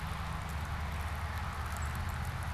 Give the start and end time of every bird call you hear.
1.6s-2.5s: unidentified bird

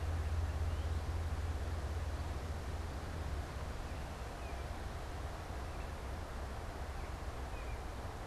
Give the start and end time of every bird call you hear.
0.5s-1.9s: Northern Cardinal (Cardinalis cardinalis)
4.2s-8.2s: unidentified bird

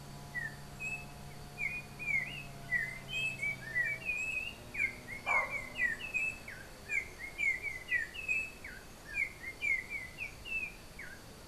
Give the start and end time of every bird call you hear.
0.0s-11.4s: Yellow-backed Oriole (Icterus chrysater)

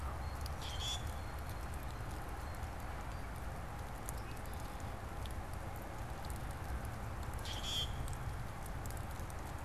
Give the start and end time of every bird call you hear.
0.0s-3.4s: Blue Jay (Cyanocitta cristata)
0.4s-1.2s: Common Grackle (Quiscalus quiscula)
7.2s-8.2s: Common Grackle (Quiscalus quiscula)

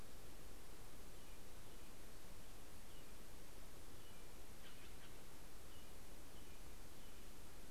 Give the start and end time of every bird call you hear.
0.8s-7.4s: American Robin (Turdus migratorius)
4.2s-5.4s: Steller's Jay (Cyanocitta stelleri)

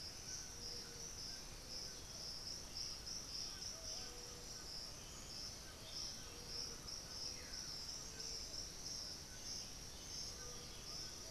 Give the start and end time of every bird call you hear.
0.0s-11.3s: Black-billed Thrush (Turdus ignobilis)
0.0s-11.3s: White-throated Toucan (Ramphastos tucanus)
5.5s-7.2s: Buff-throated Saltator (Saltator maximus)
7.2s-7.8s: unidentified bird
10.1s-11.3s: Undulated Tinamou (Crypturellus undulatus)
10.4s-11.3s: Thrush-like Wren (Campylorhynchus turdinus)

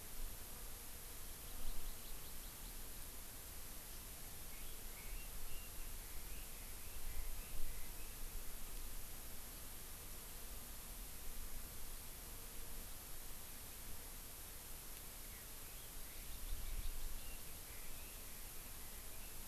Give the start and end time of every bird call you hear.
1.4s-2.7s: Hawaii Amakihi (Chlorodrepanis virens)
4.5s-8.2s: Red-billed Leiothrix (Leiothrix lutea)
15.3s-19.4s: Red-billed Leiothrix (Leiothrix lutea)
15.9s-17.4s: Hawaii Amakihi (Chlorodrepanis virens)

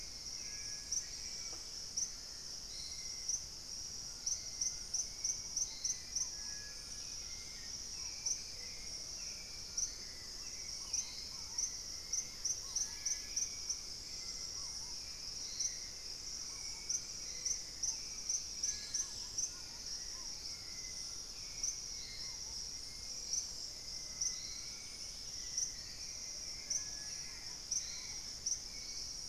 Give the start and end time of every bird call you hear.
0.0s-29.3s: Hauxwell's Thrush (Turdus hauxwelli)
0.8s-1.8s: Dusky-capped Greenlet (Pachysylvia hypoxantha)
1.2s-5.2s: unidentified bird
5.0s-28.9s: Purple-throated Fruitcrow (Querula purpurata)
6.8s-7.9s: Dusky-capped Greenlet (Pachysylvia hypoxantha)
18.2s-19.4s: Dusky-capped Greenlet (Pachysylvia hypoxantha)
24.6s-29.3s: Dusky-capped Greenlet (Pachysylvia hypoxantha)

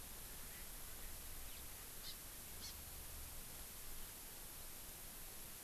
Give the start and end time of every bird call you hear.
0.2s-1.1s: Erckel's Francolin (Pternistis erckelii)
1.4s-1.6s: House Finch (Haemorhous mexicanus)
2.0s-2.1s: Hawaii Amakihi (Chlorodrepanis virens)
2.5s-2.7s: Hawaii Amakihi (Chlorodrepanis virens)

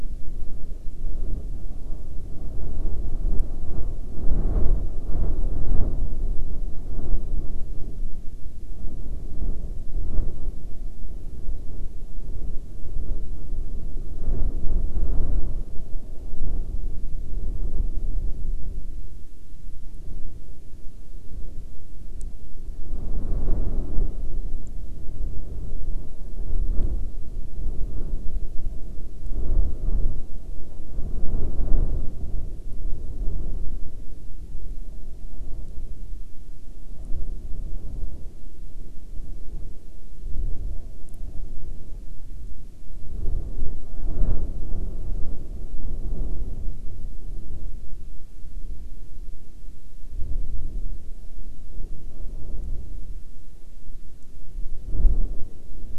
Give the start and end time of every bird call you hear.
43.3s-46.0s: Hawaiian Petrel (Pterodroma sandwichensis)

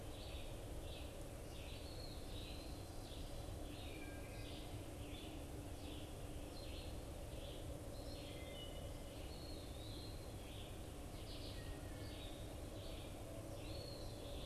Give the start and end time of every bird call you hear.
0.0s-14.5s: Eastern Wood-Pewee (Contopus virens)
0.0s-14.5s: Red-eyed Vireo (Vireo olivaceus)
0.0s-14.5s: Wood Thrush (Hylocichla mustelina)

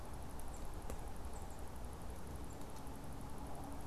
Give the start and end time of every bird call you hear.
0.3s-2.9s: Tufted Titmouse (Baeolophus bicolor)

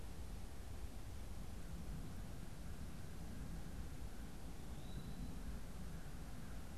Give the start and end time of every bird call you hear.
1.4s-6.8s: American Crow (Corvus brachyrhynchos)
4.4s-5.3s: Eastern Wood-Pewee (Contopus virens)

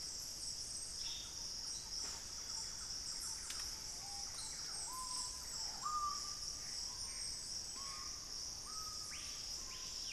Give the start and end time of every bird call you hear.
0.7s-1.6s: Ash-throated Gnateater (Conopophaga peruviana)
0.9s-6.3s: Thrush-like Wren (Campylorhynchus turdinus)
4.0s-10.1s: Screaming Piha (Lipaugus vociferans)
6.1s-8.3s: Gray Antbird (Cercomacra cinerascens)

